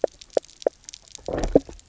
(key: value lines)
label: biophony, knock croak
recorder: SoundTrap 300

label: biophony
recorder: SoundTrap 300